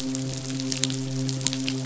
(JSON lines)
{"label": "biophony, midshipman", "recorder": "SoundTrap 500"}